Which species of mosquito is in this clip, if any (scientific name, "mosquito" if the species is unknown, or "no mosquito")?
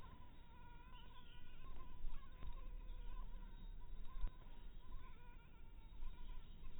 Anopheles maculatus